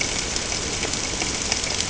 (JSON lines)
{"label": "ambient", "recorder": "HydroMoth"}